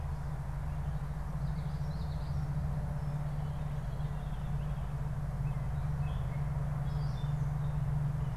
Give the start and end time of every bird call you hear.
1.3s-2.6s: Common Yellowthroat (Geothlypis trichas)
3.3s-5.1s: Veery (Catharus fuscescens)
5.3s-8.0s: Gray Catbird (Dumetella carolinensis)

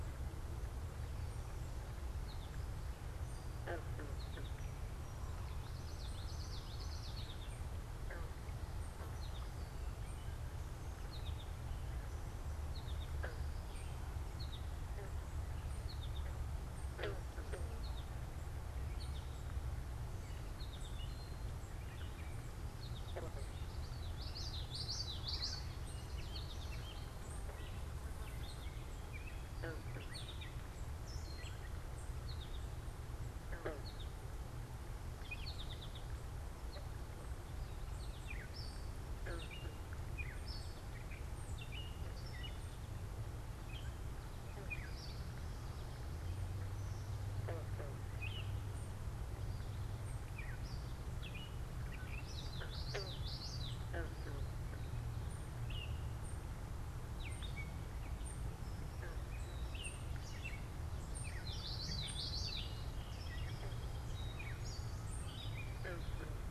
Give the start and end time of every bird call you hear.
2.0s-30.8s: American Goldfinch (Spinus tristis)
2.8s-30.9s: unidentified bird
5.4s-7.9s: Common Yellowthroat (Geothlypis trichas)
21.4s-35.6s: Gray Catbird (Dumetella carolinensis)
23.7s-25.7s: Common Yellowthroat (Geothlypis trichas)
32.1s-38.4s: American Goldfinch (Spinus tristis)
38.1s-52.4s: Gray Catbird (Dumetella carolinensis)
52.1s-53.9s: Common Yellowthroat (Geothlypis trichas)
55.1s-66.5s: unidentified bird
55.5s-66.4s: Gray Catbird (Dumetella carolinensis)
61.2s-62.8s: Common Yellowthroat (Geothlypis trichas)
62.3s-64.9s: Song Sparrow (Melospiza melodia)

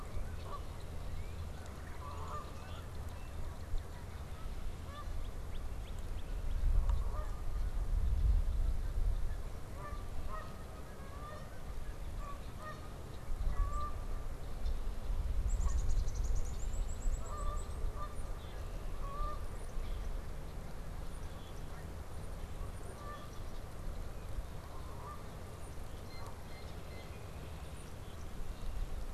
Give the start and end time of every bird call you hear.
0.0s-26.7s: Canada Goose (Branta canadensis)
0.9s-6.8s: Northern Cardinal (Cardinalis cardinalis)
2.6s-2.8s: Black-capped Chickadee (Poecile atricapillus)
15.2s-17.6s: Black-capped Chickadee (Poecile atricapillus)
18.3s-18.6s: Black-capped Chickadee (Poecile atricapillus)
21.1s-21.5s: Black-capped Chickadee (Poecile atricapillus)
26.0s-27.2s: Blue Jay (Cyanocitta cristata)
27.9s-28.2s: Black-capped Chickadee (Poecile atricapillus)

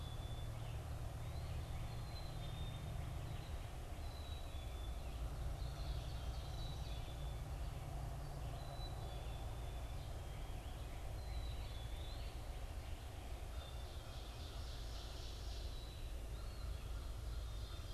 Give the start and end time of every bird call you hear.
0.0s-17.9s: Black-capped Chickadee (Poecile atricapillus)
0.0s-17.9s: Red-eyed Vireo (Vireo olivaceus)
5.1s-7.2s: Ovenbird (Seiurus aurocapilla)
11.0s-12.4s: Eastern Wood-Pewee (Contopus virens)
13.3s-17.9s: Ovenbird (Seiurus aurocapilla)
16.1s-16.8s: Eastern Wood-Pewee (Contopus virens)

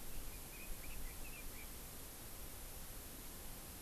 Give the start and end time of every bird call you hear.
0.0s-1.8s: Red-billed Leiothrix (Leiothrix lutea)

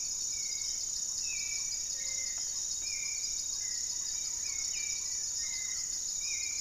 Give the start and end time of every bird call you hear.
0.0s-6.6s: Black-tailed Trogon (Trogon melanurus)
0.0s-6.6s: Gray-fronted Dove (Leptotila rufaxilla)
0.0s-6.6s: Hauxwell's Thrush (Turdus hauxwelli)
0.3s-2.9s: Black-faced Antthrush (Formicarius analis)
3.5s-6.6s: Goeldi's Antbird (Akletos goeldii)

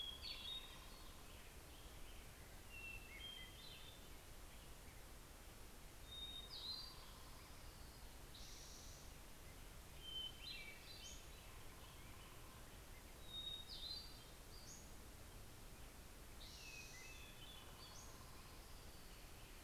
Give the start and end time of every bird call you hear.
0.0s-0.5s: Western Tanager (Piranga ludoviciana)
0.0s-19.6s: Hermit Thrush (Catharus guttatus)
10.2s-19.1s: Pacific-slope Flycatcher (Empidonax difficilis)

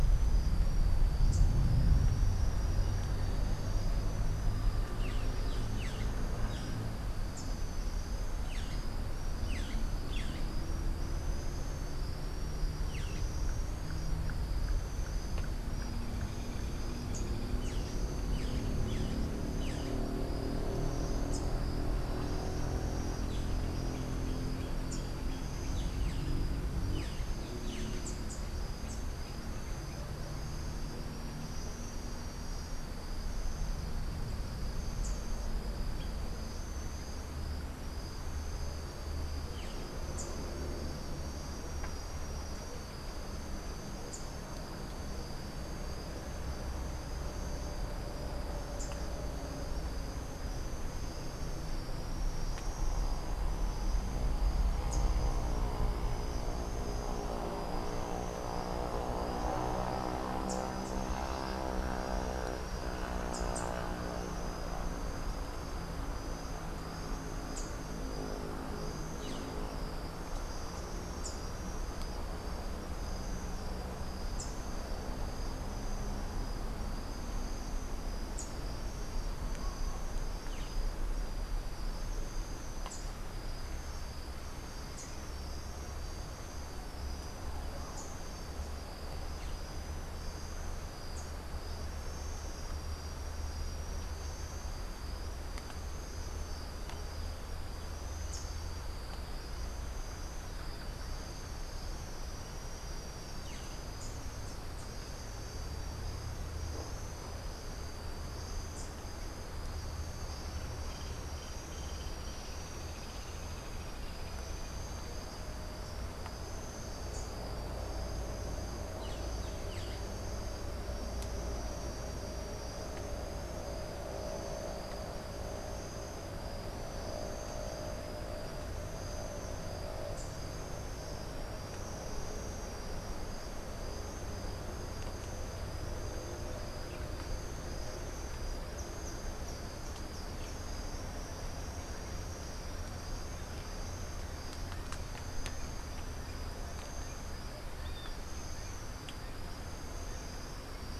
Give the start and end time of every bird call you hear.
1.2s-1.6s: Rufous-capped Warbler (Basileuterus rufifrons)
4.9s-13.4s: Boat-billed Flycatcher (Megarynchus pitangua)
16.5s-28.3s: Boat-billed Flycatcher (Megarynchus pitangua)
34.7s-44.4s: Rufous-capped Warbler (Basileuterus rufifrons)
48.7s-55.2s: Rufous-capped Warbler (Basileuterus rufifrons)
60.2s-71.6s: Rufous-capped Warbler (Basileuterus rufifrons)
78.1s-88.5s: Rufous-capped Warbler (Basileuterus rufifrons)
91.1s-98.6s: Rufous-capped Warbler (Basileuterus rufifrons)
110.7s-115.4s: Hoffmann's Woodpecker (Melanerpes hoffmannii)

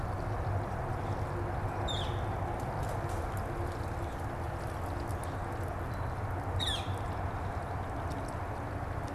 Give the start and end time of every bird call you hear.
1.7s-2.3s: Northern Flicker (Colaptes auratus)
6.5s-7.0s: Northern Flicker (Colaptes auratus)

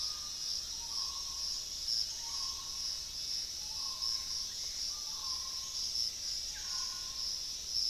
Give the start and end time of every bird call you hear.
0.0s-7.9s: Starred Wood-Quail (Odontophorus stellatus)
3.1s-7.9s: Gray Antbird (Cercomacra cinerascens)

